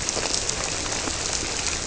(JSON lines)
{"label": "biophony", "recorder": "SoundTrap 300"}